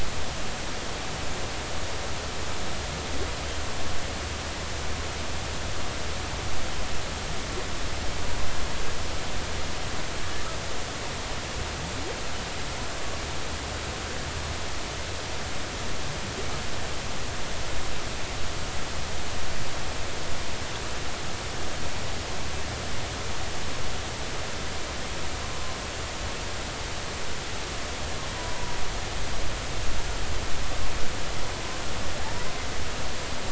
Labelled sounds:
28.4	28.8	humpback whale, 0.90 to 1.0 kHz

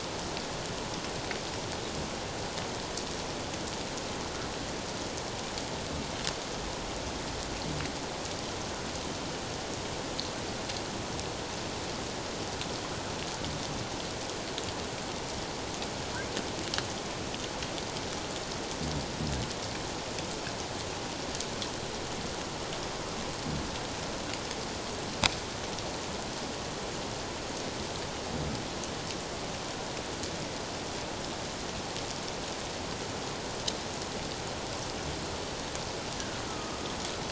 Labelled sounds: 36.1	36.4	humpback whale, 1.4 to 1.8 kHz

